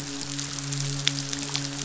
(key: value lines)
label: biophony, midshipman
recorder: SoundTrap 500